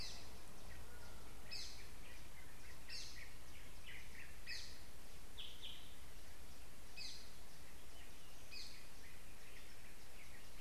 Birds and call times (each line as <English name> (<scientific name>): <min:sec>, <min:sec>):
Gray-throated Barbet (Gymnobucco bonapartei): 0:01.7
Yellow-whiskered Greenbul (Eurillas latirostris): 0:03.9